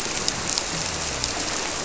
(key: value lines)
label: biophony
recorder: SoundTrap 300